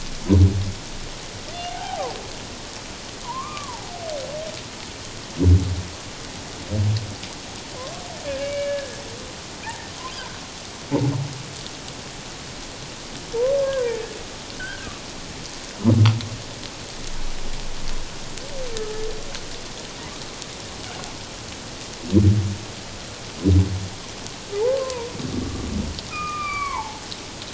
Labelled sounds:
1.7	2.1	humpback whale, 0.78 to 1.7 kHz
3.2	3.9	humpback whale, 0.78 to 1.3 kHz
8.2	9.0	humpback whale, 1.6 to 2.9 kHz
9.6	9.9	humpback whale, 1.6 to 1.9 kHz
13.6	14.9	humpback whale, 0.88 to 2.0 kHz
18.8	19.0	humpback whale, 1.2 to 1.3 kHz
24.6	25.7	humpback whale, 0.81 to 1.2 kHz
26.1	27.0	humpback whale, 0.78 to 2.5 kHz

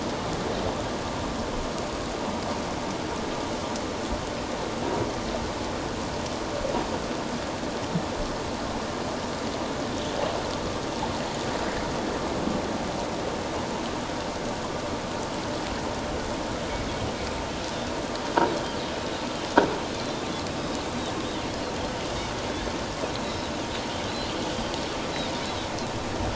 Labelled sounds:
20.5	20.8	Pacific white-sided dolphin, 4.9 to 5.2 kHz
23.2	23.5	Pacific white-sided dolphin, 3.8 to 4.0 kHz

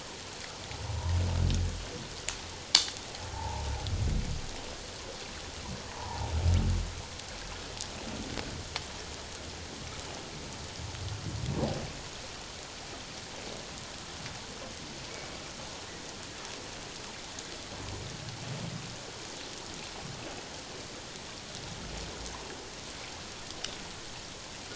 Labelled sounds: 3.3	3.6	humpback whale, 0.78 to 0.97 kHz
5.9	6.3	humpback whale, 0.78 to 1.1 kHz

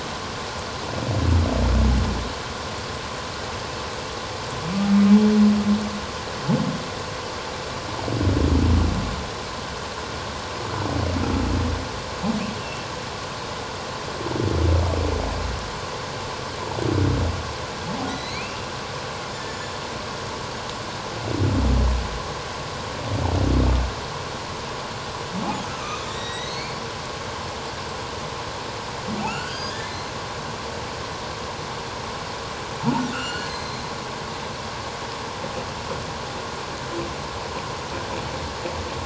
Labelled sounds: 12.6	12.9	humpback whale, 2.6 to 2.8 kHz
18.1	18.7	humpback whale, 1.9 to 4.7 kHz
19.3	19.6	humpback whale, 1.7 to 1.8 kHz
26.0	26.8	humpback whale, 1.8 to 7.7 kHz
29.2	30.1	humpback whale, 1.2 to 6.7 kHz
33.1	33.8	humpback whale, 1.2 to 6.3 kHz

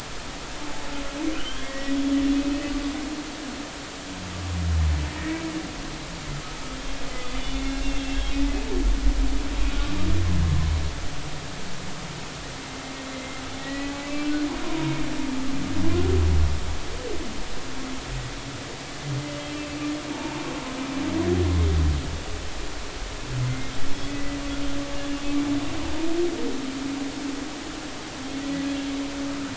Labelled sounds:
1.3	2.0	humpback whale, 1.3 to 3.3 kHz
2.3	2.7	humpback whale, 2.5 to 2.7 kHz
5.2	5.4	humpback whale, 1.8 to 2.0 kHz
7.2	7.8	humpback whale, 2.1 to 3.6 kHz
13.1	14.3	humpback whale, 1.9 to 2.7 kHz
14.6	15.0	humpback whale, 0.90 to 1.1 kHz
20.1	20.4	humpback whale, 0.83 to 1.1 kHz
24.0	24.4	humpback whale, 1.95 to 2.05 kHz

